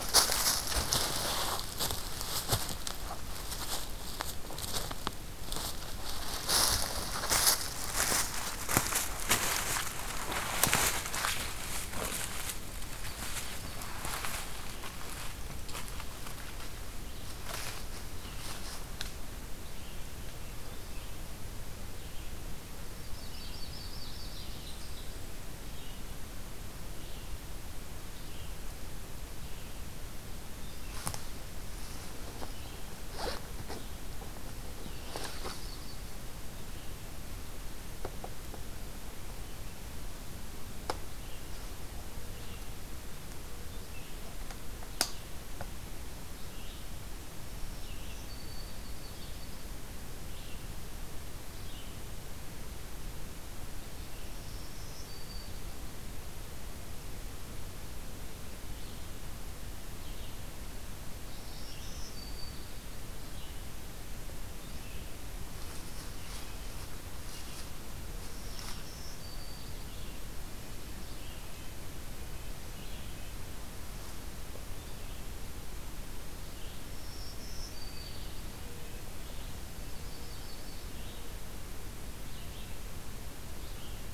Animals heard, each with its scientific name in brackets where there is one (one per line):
Ovenbird (Seiurus aurocapilla)
Red-eyed Vireo (Vireo olivaceus)
Yellow-rumped Warbler (Setophaga coronata)
Black-throated Green Warbler (Setophaga virens)